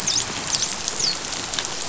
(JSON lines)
{"label": "biophony, dolphin", "recorder": "SoundTrap 500"}